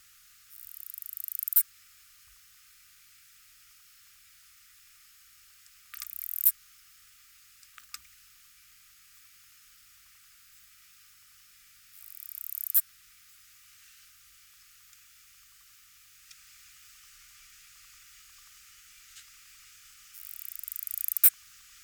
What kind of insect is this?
orthopteran